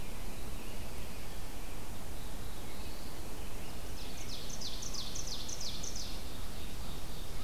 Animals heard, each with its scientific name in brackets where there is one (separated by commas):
Ovenbird (Seiurus aurocapilla), American Robin (Turdus migratorius), Black-throated Blue Warbler (Setophaga caerulescens)